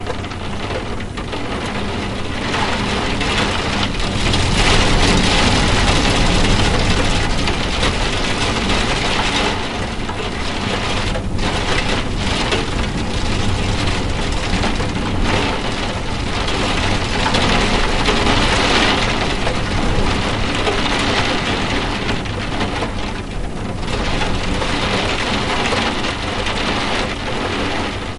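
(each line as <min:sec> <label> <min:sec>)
0:00.0 Heavy rain falls steadily against a window. 0:28.2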